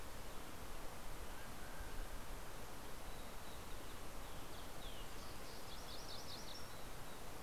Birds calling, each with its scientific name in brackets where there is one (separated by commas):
Mountain Quail (Oreortyx pictus), MacGillivray's Warbler (Geothlypis tolmiei)